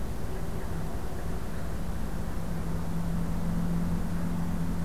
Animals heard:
forest ambience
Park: Acadia National Park